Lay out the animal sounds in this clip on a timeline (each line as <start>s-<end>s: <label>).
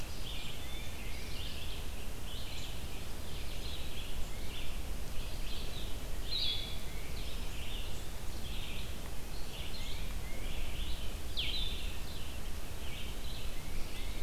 0.0s-14.2s: Blue-headed Vireo (Vireo solitarius)
0.0s-14.2s: Red-eyed Vireo (Vireo olivaceus)
0.5s-1.4s: Tufted Titmouse (Baeolophus bicolor)
9.7s-10.6s: Tufted Titmouse (Baeolophus bicolor)
13.4s-14.2s: Tufted Titmouse (Baeolophus bicolor)